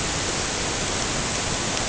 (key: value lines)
label: ambient
recorder: HydroMoth